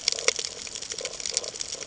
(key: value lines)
label: ambient
recorder: HydroMoth